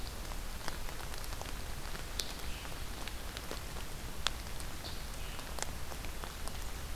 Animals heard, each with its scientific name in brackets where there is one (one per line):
Scarlet Tanager (Piranga olivacea)